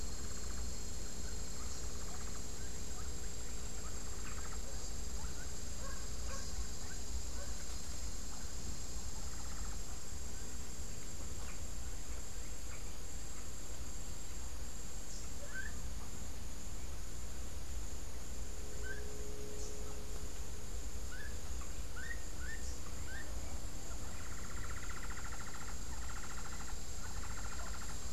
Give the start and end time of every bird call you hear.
0.0s-2.5s: Hoffmann's Woodpecker (Melanerpes hoffmannii)
3.6s-4.8s: Hoffmann's Woodpecker (Melanerpes hoffmannii)
5.1s-7.9s: Gray-headed Chachalaca (Ortalis cinereiceps)
8.8s-10.2s: Hoffmann's Woodpecker (Melanerpes hoffmannii)
15.3s-16.0s: Gray-headed Chachalaca (Ortalis cinereiceps)
18.7s-23.4s: Gray-headed Chachalaca (Ortalis cinereiceps)
24.1s-28.1s: Hoffmann's Woodpecker (Melanerpes hoffmannii)

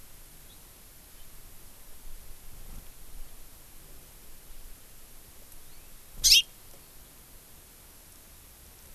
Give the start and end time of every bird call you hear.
6.2s-6.5s: Hawaii Amakihi (Chlorodrepanis virens)

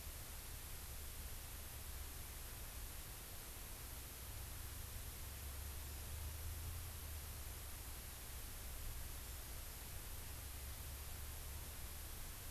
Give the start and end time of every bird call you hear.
9.3s-9.6s: Hawaii Amakihi (Chlorodrepanis virens)

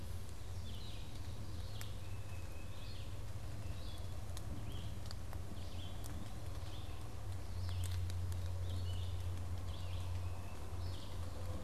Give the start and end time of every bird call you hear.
0.0s-11.6s: Red-eyed Vireo (Vireo olivaceus)
2.0s-3.1s: Tufted Titmouse (Baeolophus bicolor)

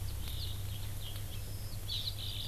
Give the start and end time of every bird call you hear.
0.0s-2.5s: Eurasian Skylark (Alauda arvensis)
1.9s-2.5s: Hawaii Amakihi (Chlorodrepanis virens)

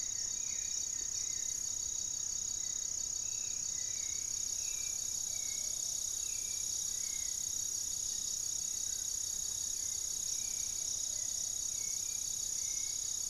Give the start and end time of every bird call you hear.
0.0s-1.8s: Goeldi's Antbird (Akletos goeldii)
0.0s-13.3s: Hauxwell's Thrush (Turdus hauxwelli)
5.1s-11.8s: Plumbeous Pigeon (Patagioenas plumbea)
7.9s-10.2s: Black-faced Antthrush (Formicarius analis)
12.0s-13.3s: Plain-winged Antshrike (Thamnophilus schistaceus)

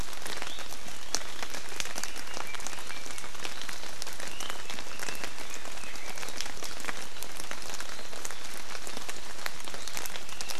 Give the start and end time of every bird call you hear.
4.3s-6.3s: Red-billed Leiothrix (Leiothrix lutea)

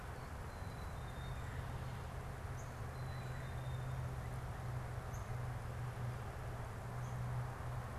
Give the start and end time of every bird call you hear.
0.0s-4.1s: Black-capped Chickadee (Poecile atricapillus)
2.3s-5.5s: Northern Cardinal (Cardinalis cardinalis)

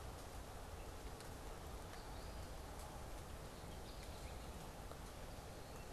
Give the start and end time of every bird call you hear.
0.0s-5.9s: unidentified bird
3.6s-4.5s: American Goldfinch (Spinus tristis)

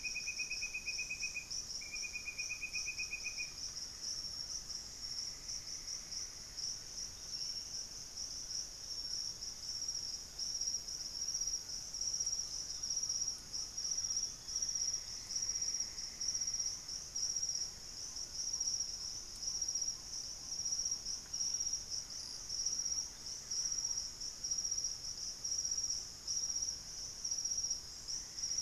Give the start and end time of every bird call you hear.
0.0s-16.8s: Great Antshrike (Taraba major)
4.7s-7.1s: Plumbeous Antbird (Myrmelastes hyperythrus)
6.9s-7.7s: White-bellied Tody-Tyrant (Hemitriccus griseipectus)
7.1s-7.9s: unidentified bird
7.5s-12.2s: White-throated Toucan (Ramphastos tucanus)
12.3s-16.0s: unidentified bird
13.6s-15.2s: Chestnut-winged Foliage-gleaner (Dendroma erythroptera)
14.1s-17.1s: Plumbeous Antbird (Myrmelastes hyperythrus)
16.7s-21.8s: Black-tailed Trogon (Trogon melanurus)
21.7s-28.6s: Great Antshrike (Taraba major)
22.5s-23.9s: Buff-breasted Wren (Cantorchilus leucotis)
22.9s-23.6s: White-bellied Tody-Tyrant (Hemitriccus griseipectus)
23.2s-27.3s: Plain-winged Antshrike (Thamnophilus schistaceus)
27.8s-28.6s: Plumbeous Antbird (Myrmelastes hyperythrus)

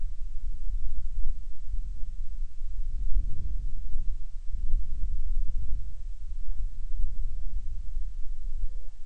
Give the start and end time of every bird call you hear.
5.2s-9.0s: Hawaiian Petrel (Pterodroma sandwichensis)

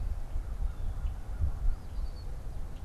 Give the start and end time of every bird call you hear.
0.3s-1.9s: American Crow (Corvus brachyrhynchos)
1.7s-2.4s: Red-winged Blackbird (Agelaius phoeniceus)

